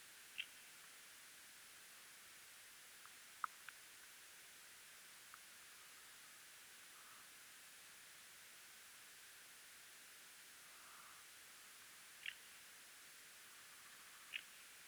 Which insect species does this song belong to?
Barbitistes serricauda